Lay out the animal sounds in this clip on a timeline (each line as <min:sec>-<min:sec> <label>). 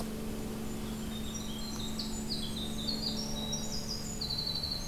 0:00.0-0:03.1 Golden-crowned Kinglet (Regulus satrapa)
0:00.7-0:04.9 Winter Wren (Troglodytes hiemalis)